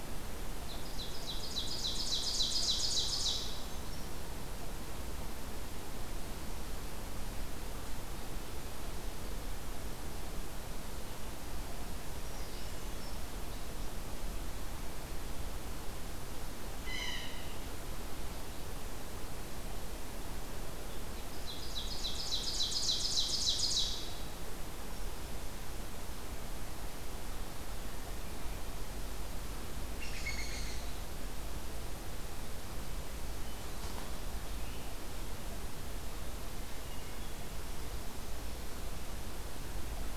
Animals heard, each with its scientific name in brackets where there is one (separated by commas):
Hermit Thrush (Catharus guttatus), Ovenbird (Seiurus aurocapilla), Pileated Woodpecker (Dryocopus pileatus), Blue Jay (Cyanocitta cristata)